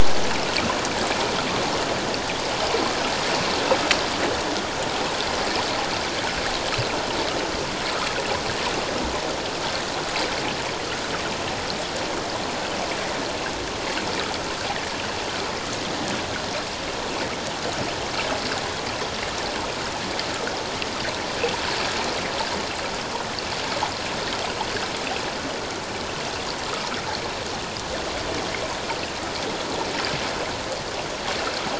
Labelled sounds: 26.7	27.0	water noise, 1.2 to 1.4 kHz

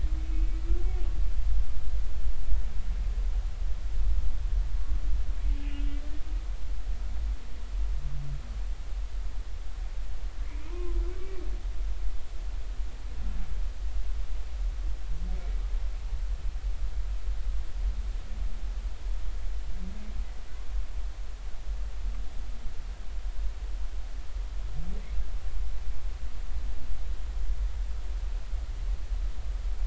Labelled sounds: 0.2	0.6	humpback whale, 2.2 to 2.6 kHz
5.6	6.0	humpback whale, 2.2 to 2.9 kHz
10.7	11.0	humpback whale, 0.86 to 1.1 kHz

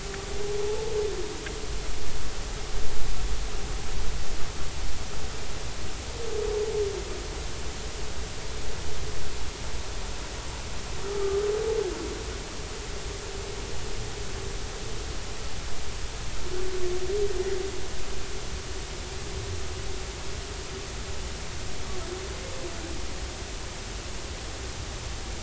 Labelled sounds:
11.1	11.4	humpback whale, 1.1 to 1.3 kHz

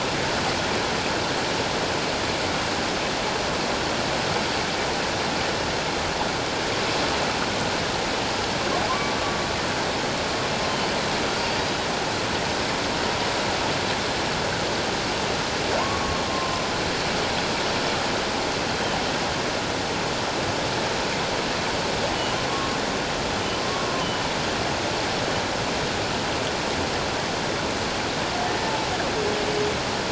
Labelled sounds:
8.9	9.2	humpback whale, 0.97 to 1.2 kHz
15.8	16.6	humpback whale, 1.0 to 1.2 kHz
22.5	22.8	humpback whale, 1.0 to 1.2 kHz
23.6	23.9	humpback whale, 1.0 to 1.2 kHz
28.6	28.9	humpback whale, 0.84 to 0.97 kHz

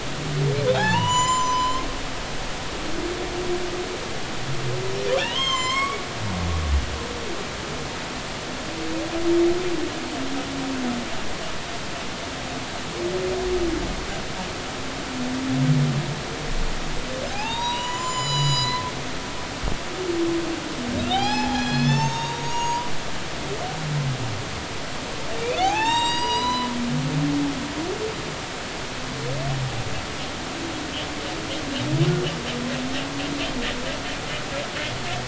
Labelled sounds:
0.7	1.8	humpback whale, 0.80 to 7.2 kHz
5.2	6.0	humpback whale, 0.86 to 7.8 kHz
17.3	18.8	humpback whale, 0.80 to 8.0 kHz
21.0	22.9	humpback whale, 0.80 to 7.3 kHz
25.6	26.7	humpback whale, 0.80 to 8.0 kHz

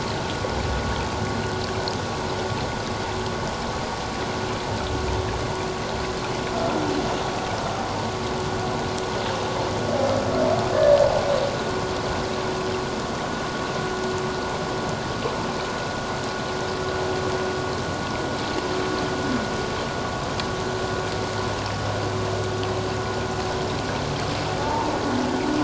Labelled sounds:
24.6	24.9	humpback whale, 0.81 to 1.0 kHz

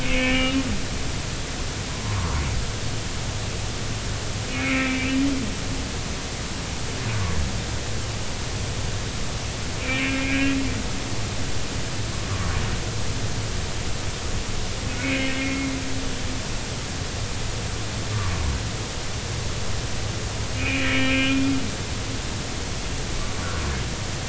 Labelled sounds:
0.0	0.6	humpback whale, 2.1 to 3.0 kHz
2.2	2.4	humpback whale, 0.90 to 1.2 kHz
4.5	5.1	humpback whale, 1.3 to 2.7 kHz
9.8	10.6	humpback whale, 1.6 to 2.8 kHz
15.0	15.7	humpback whale, 2.0 to 3.0 kHz
20.5	21.4	humpback whale, 2.1 to 3.2 kHz

